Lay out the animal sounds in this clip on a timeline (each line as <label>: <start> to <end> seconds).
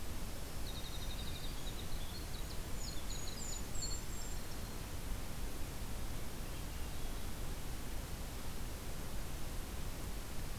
Black-throated Green Warbler (Setophaga virens): 0.5 to 1.8 seconds
Winter Wren (Troglodytes hiemalis): 0.5 to 4.8 seconds
Golden-crowned Kinglet (Regulus satrapa): 2.2 to 4.5 seconds
Black-throated Green Warbler (Setophaga virens): 4.0 to 5.1 seconds
Swainson's Thrush (Catharus ustulatus): 6.1 to 7.6 seconds